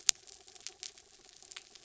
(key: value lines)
label: anthrophony, mechanical
recorder: SoundTrap 300